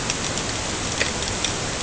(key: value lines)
label: ambient
recorder: HydroMoth